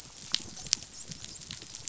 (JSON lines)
{"label": "biophony, dolphin", "recorder": "SoundTrap 500"}